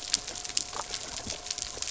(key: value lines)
label: anthrophony, boat engine
recorder: SoundTrap 300